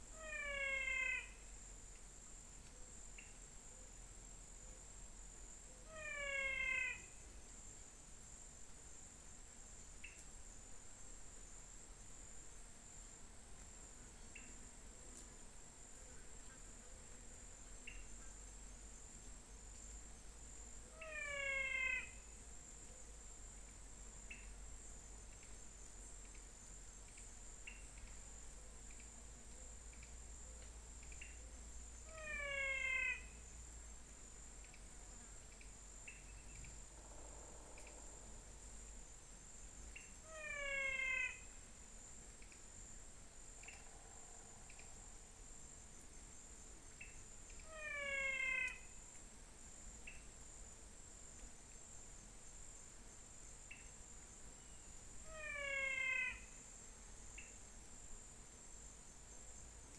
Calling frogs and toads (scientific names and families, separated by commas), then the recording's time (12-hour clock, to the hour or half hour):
Physalaemus albonotatus (Leptodactylidae), Leptodactylus podicipinus (Leptodactylidae)
~5pm